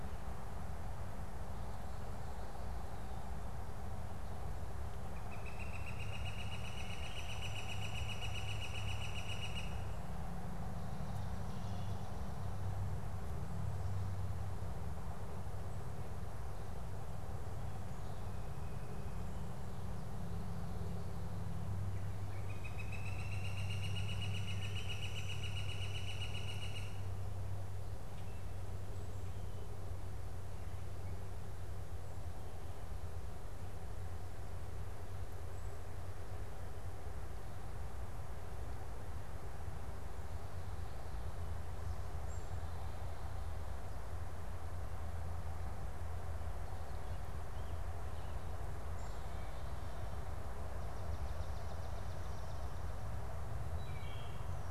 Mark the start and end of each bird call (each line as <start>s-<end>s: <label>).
4.8s-10.0s: Northern Flicker (Colaptes auratus)
21.9s-27.3s: Northern Flicker (Colaptes auratus)
50.4s-52.6s: Swamp Sparrow (Melospiza georgiana)
53.6s-54.6s: Wood Thrush (Hylocichla mustelina)